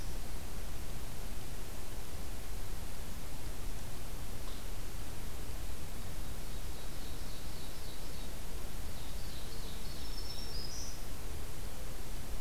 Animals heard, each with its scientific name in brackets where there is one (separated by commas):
Ovenbird (Seiurus aurocapilla), Black-throated Green Warbler (Setophaga virens)